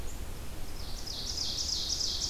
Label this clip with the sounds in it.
Black-capped Chickadee, Ovenbird